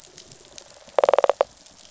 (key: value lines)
label: biophony, rattle response
recorder: SoundTrap 500